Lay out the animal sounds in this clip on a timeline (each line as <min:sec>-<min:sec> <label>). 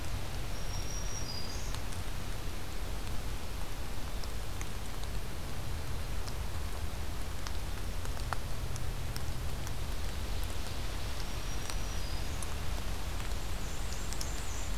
0:00.4-0:01.8 Black-throated Green Warbler (Setophaga virens)
0:11.1-0:12.6 Black-throated Green Warbler (Setophaga virens)
0:13.3-0:14.8 Black-and-white Warbler (Mniotilta varia)